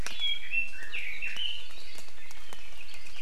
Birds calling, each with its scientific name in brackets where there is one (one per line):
Apapane (Himatione sanguinea)